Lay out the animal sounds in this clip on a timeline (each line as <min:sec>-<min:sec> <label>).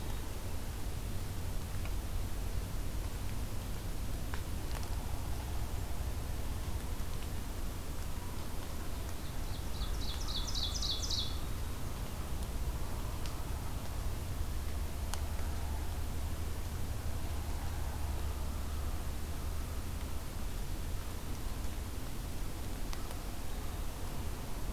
0:09.3-0:11.5 Ovenbird (Seiurus aurocapilla)
0:09.7-0:11.1 American Crow (Corvus brachyrhynchos)